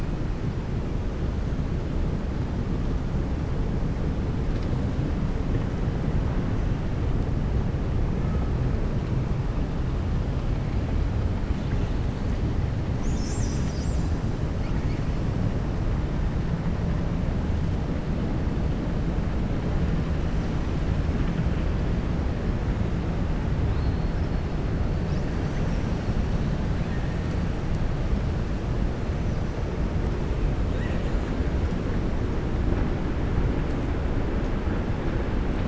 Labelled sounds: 30.6	31.2	killer whale, southern resident, 1.6 to 4.2 kHz

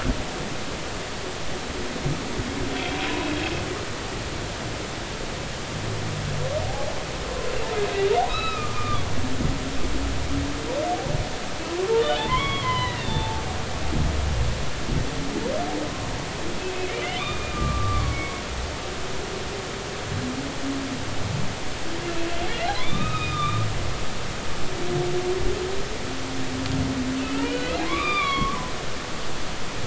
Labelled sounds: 2.7	3.0	humpback whale, 3.1 to 3.4 kHz
8.3	9.1	humpback whale, 1.1 to 4.1 kHz
12.2	13.4	humpback whale, 0.80 to 3.7 kHz
17.2	18.3	humpback whale, 1.0 to 3.7 kHz
22.0	23.7	humpback whale, 1.1 to 3.8 kHz
27.2	28.6	humpback whale, 0.99 to 3.8 kHz

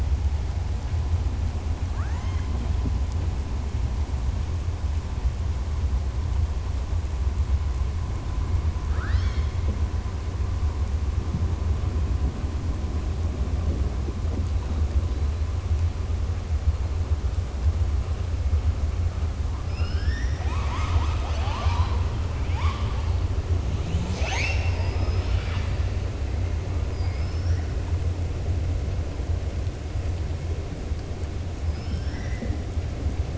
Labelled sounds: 1.8	2.6	killer whale, southern resident, 0.25 to 4.1 kHz
8.8	9.6	killer whale, southern resident, 1.1 to 6.4 kHz
26.9	27.6	killer whale, southern resident, 4.8 to 5.9 kHz

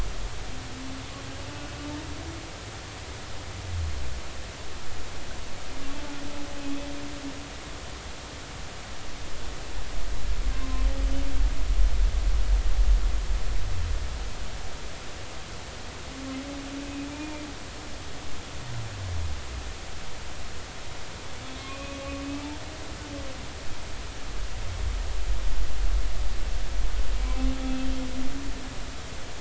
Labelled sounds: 10.5	10.8	humpback whale, 0.99 to 1.1 kHz
21.6	22.0	humpback whale, 1.0 to 2.6 kHz

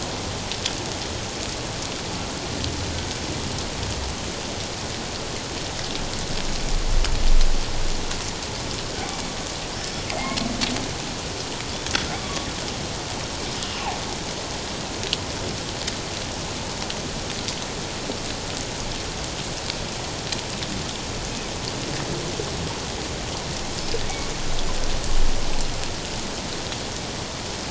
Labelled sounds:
10.1	10.5	killer whale, northern resident, G clan, 2.0 to 2.3 kHz
12.2	12.5	killer whale, northern resident, G clan, 1.1 to 1.2 kHz

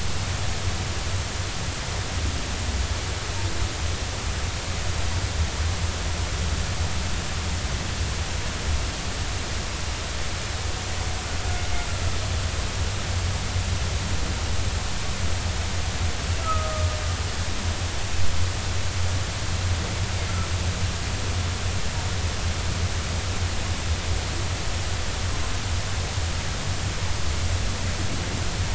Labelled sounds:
16.4	17.0	humpback whale, 1.2 to 1.4 kHz

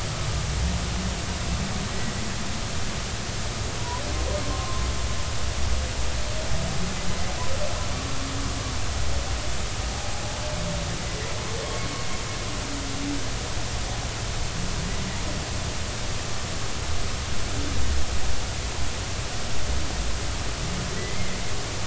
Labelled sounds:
4.4	4.8	humpback whale, 0.99 to 1.1 kHz
20.9	21.4	humpback whale, 1.9 to 2.2 kHz

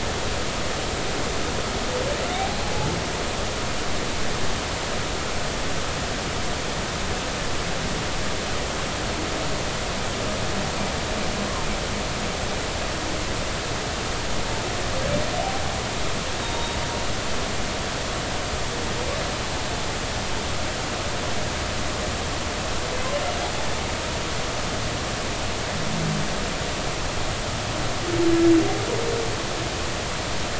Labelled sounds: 16.4	16.8	humpback whale, 0.86 to 3.8 kHz

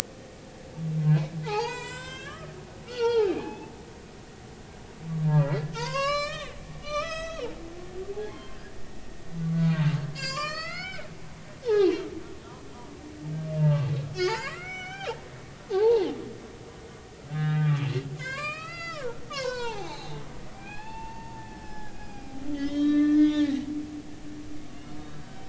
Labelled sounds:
1.4	4.3	humpback whale, 0.80 to 7.6 kHz
5.2	7.5	humpback whale, 0.83 to 8.0 kHz
8.1	8.7	humpback whale, 0.80 to 1.7 kHz
10.1	11.1	humpback whale, 0.99 to 7.6 kHz
11.7	12.0	humpback whale, 2.7 to 3.0 kHz
13.6	15.1	humpback whale, 0.83 to 6.9 kHz
15.7	16.0	humpback whale, 0.80 to 1.0 kHz
17.3	17.9	humpback whale, 1.1 to 2.5 kHz
18.2	20.2	humpback whale, 0.80 to 6.8 kHz
20.5	23.7	humpback whale, 0.80 to 5.7 kHz
24.7	25.4	humpback whale, 2.8 to 3.1 kHz

